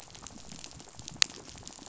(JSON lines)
{"label": "biophony, rattle", "recorder": "SoundTrap 500"}